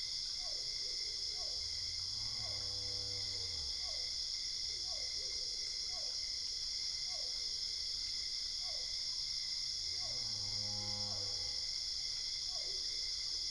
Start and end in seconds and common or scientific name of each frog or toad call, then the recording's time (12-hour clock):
0.0	13.1	Physalaemus cuvieri
2:00am